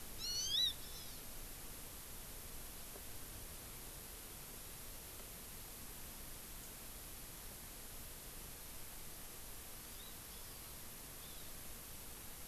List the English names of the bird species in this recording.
Hawaii Amakihi